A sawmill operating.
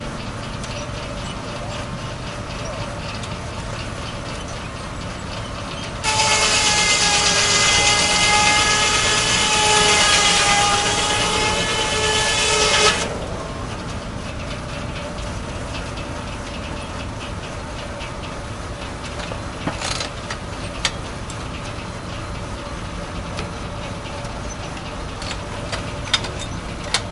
6.0 13.1

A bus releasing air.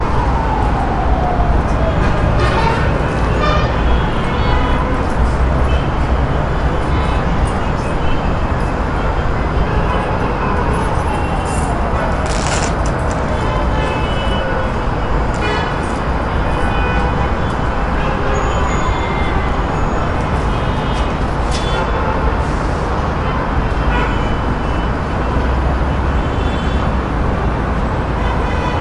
22.3 23.1

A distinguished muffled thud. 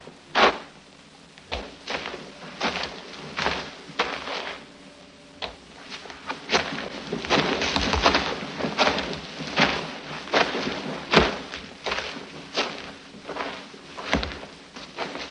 14.0 14.5

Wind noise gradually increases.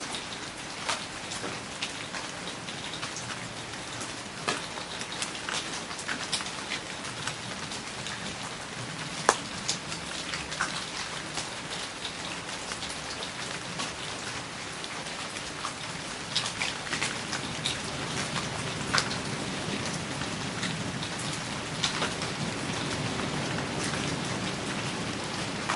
16.2 25.8

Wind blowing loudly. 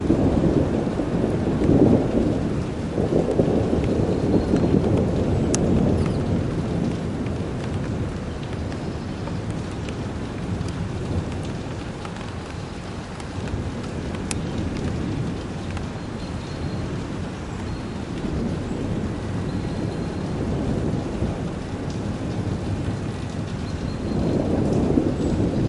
23.7 25.7

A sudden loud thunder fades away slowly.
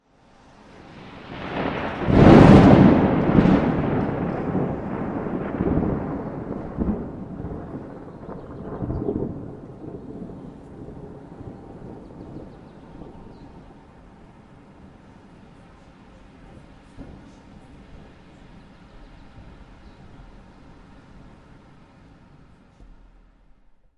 0.8 13.7

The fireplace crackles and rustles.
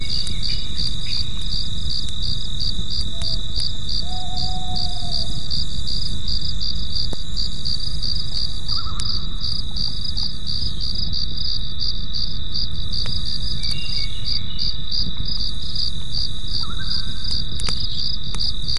17.5 18.8

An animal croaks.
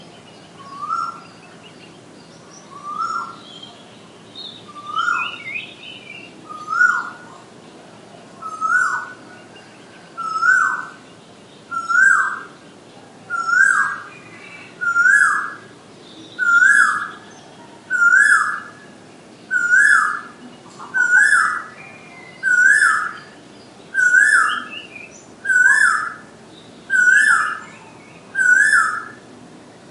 20.9 21.6

